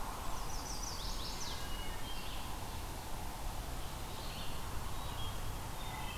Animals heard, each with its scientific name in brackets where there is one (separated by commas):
Red-eyed Vireo (Vireo olivaceus), Chestnut-sided Warbler (Setophaga pensylvanica), Eastern Wood-Pewee (Contopus virens), Wood Thrush (Hylocichla mustelina), Blackburnian Warbler (Setophaga fusca)